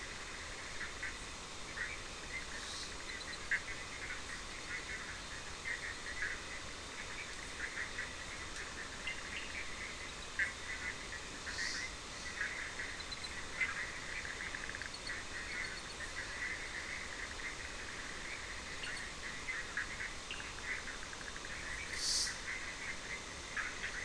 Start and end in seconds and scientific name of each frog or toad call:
0.0	24.0	Boana bischoffi
8.9	9.7	Sphaenorhynchus surdus
18.5	19.1	Sphaenorhynchus surdus
20.1	20.6	Sphaenorhynchus surdus